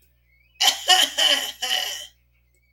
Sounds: Throat clearing